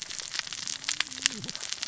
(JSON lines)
{"label": "biophony, cascading saw", "recorder": "SoundTrap 600 or HydroMoth"}